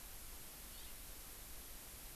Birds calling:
House Finch (Haemorhous mexicanus)

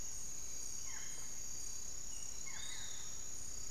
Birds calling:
Barred Forest-Falcon (Micrastur ruficollis), Piratic Flycatcher (Legatus leucophaius)

